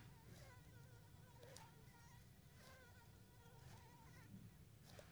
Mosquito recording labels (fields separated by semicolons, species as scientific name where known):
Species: Anopheles arabiensis; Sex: female; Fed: unfed; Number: one; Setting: cup